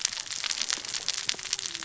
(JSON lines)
{"label": "biophony, cascading saw", "recorder": "SoundTrap 600 or HydroMoth"}